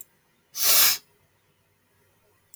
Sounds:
Sniff